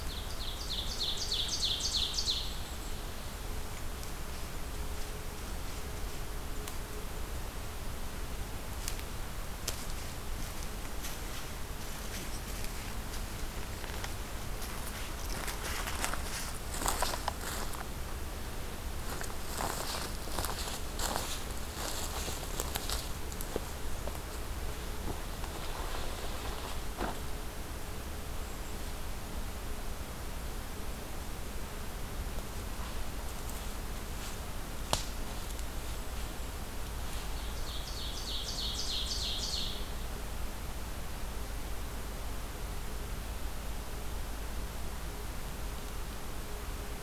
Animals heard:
Ovenbird (Seiurus aurocapilla)
Golden-crowned Kinglet (Regulus satrapa)

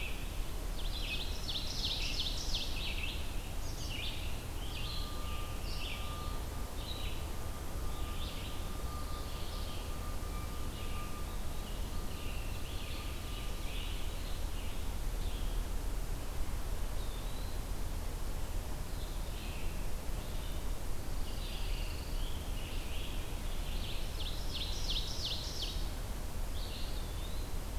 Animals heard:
Pine Warbler (Setophaga pinus)
Red-eyed Vireo (Vireo olivaceus)
Ovenbird (Seiurus aurocapilla)
Eastern Wood-Pewee (Contopus virens)
Scarlet Tanager (Piranga olivacea)

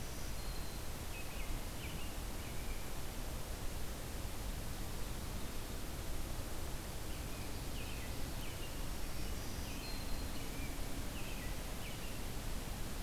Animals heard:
American Robin (Turdus migratorius)
Black-throated Green Warbler (Setophaga virens)
Ovenbird (Seiurus aurocapilla)

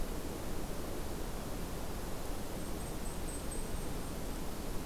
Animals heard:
Blackpoll Warbler (Setophaga striata)

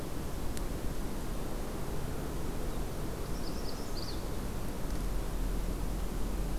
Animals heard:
Magnolia Warbler (Setophaga magnolia)

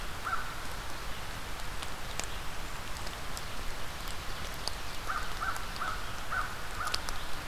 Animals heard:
American Crow (Corvus brachyrhynchos)

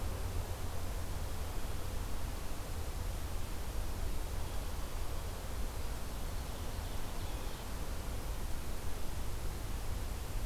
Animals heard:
Ovenbird (Seiurus aurocapilla)

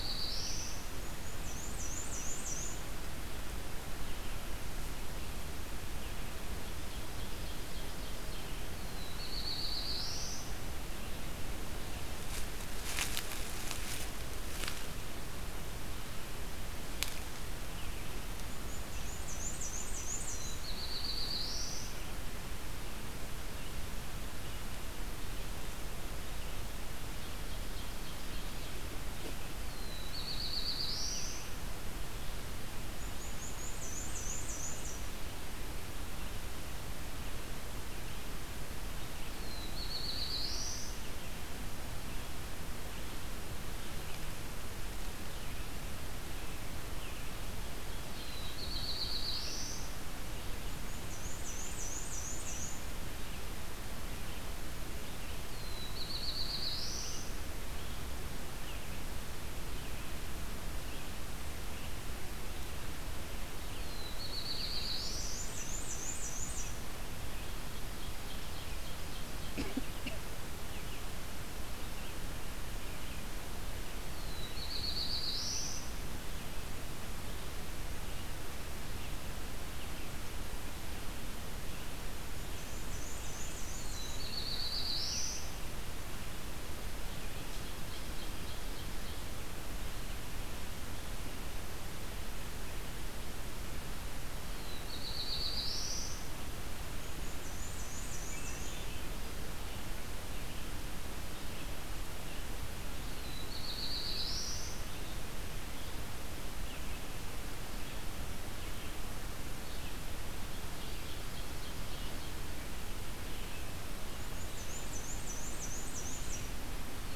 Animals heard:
Black-throated Blue Warbler (Setophaga caerulescens)
Black-and-white Warbler (Mniotilta varia)
Ovenbird (Seiurus aurocapilla)
Red-eyed Vireo (Vireo olivaceus)
Swainson's Thrush (Catharus ustulatus)

